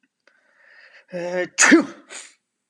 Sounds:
Sneeze